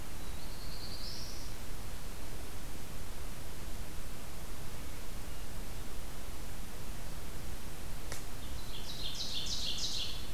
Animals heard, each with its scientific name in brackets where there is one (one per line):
Ovenbird (Seiurus aurocapilla)
Black-throated Blue Warbler (Setophaga caerulescens)